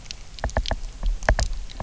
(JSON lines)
{"label": "biophony, knock", "recorder": "SoundTrap 300"}